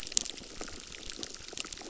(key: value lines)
label: biophony, crackle
recorder: SoundTrap 600